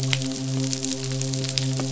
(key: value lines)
label: biophony, midshipman
recorder: SoundTrap 500